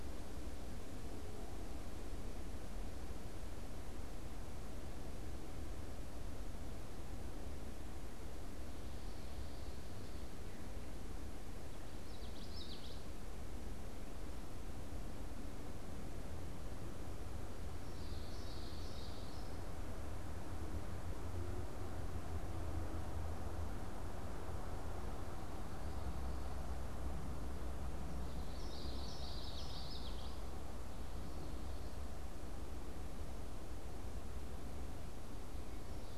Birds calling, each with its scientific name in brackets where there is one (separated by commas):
Common Yellowthroat (Geothlypis trichas)